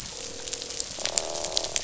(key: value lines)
label: biophony, croak
recorder: SoundTrap 500